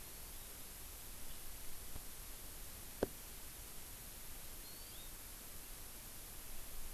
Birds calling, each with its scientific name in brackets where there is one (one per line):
Hawaii Amakihi (Chlorodrepanis virens)